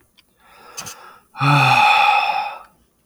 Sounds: Sigh